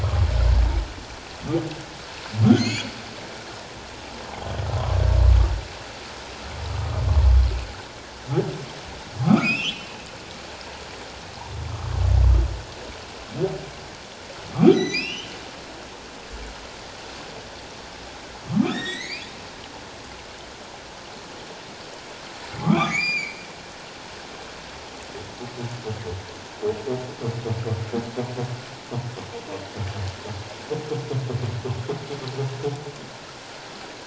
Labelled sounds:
2.5	2.9	humpback whale, 1.9 to 7.2 kHz
9.2	9.9	humpback whale, 1.0 to 5.5 kHz
14.7	15.3	humpback whale, 1.9 to 6.2 kHz
18.5	19.3	humpback whale, 1.0 to 8.0 kHz
22.6	23.4	humpback whale, 1.0 to 7.3 kHz

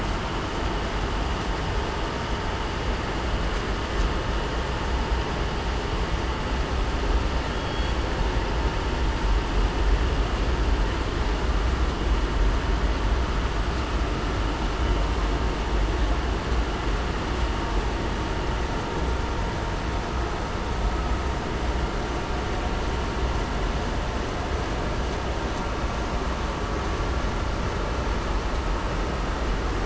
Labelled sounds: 7.5	7.9	killer whale, southern resident, 3.3 to 3.4 kHz

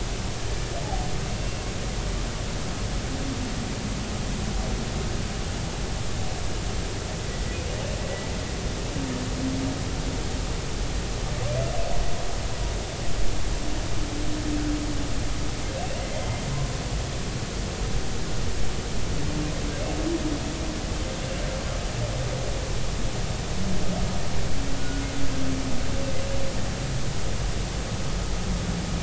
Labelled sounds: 1.4	1.7	humpback whale, 2.7 to 2.8 kHz
24.8	25.0	humpback whale, 1.4 to 1.5 kHz

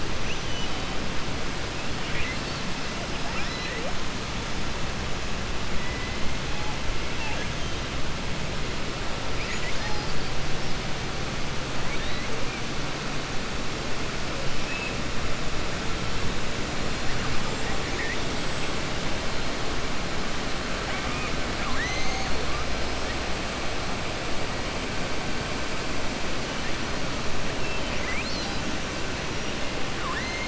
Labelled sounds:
0.2	0.9	killer whale, southern resident, 2.5 to 3.8 kHz
2.0	2.6	killer whale, southern resident, 1.6 to 5.3 kHz
3.2	4.0	killer whale, southern resident, 0.47 to 5.7 kHz
9.3	10.0	killer whale, southern resident, 0.84 to 3.2 kHz
20.8	22.3	killer whale, southern resident, 1.0 to 6.6 kHz

